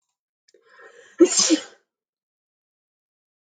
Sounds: Sneeze